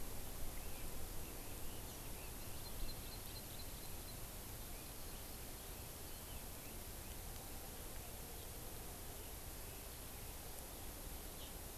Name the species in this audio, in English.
Red-billed Leiothrix, Hawaii Amakihi